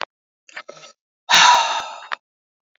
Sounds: Sigh